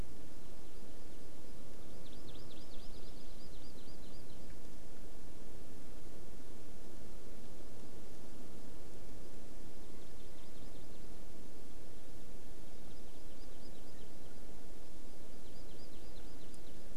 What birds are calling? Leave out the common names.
Chlorodrepanis virens